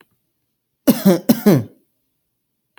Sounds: Cough